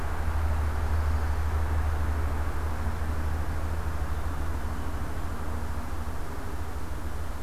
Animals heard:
forest ambience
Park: Marsh-Billings-Rockefeller National Historical Park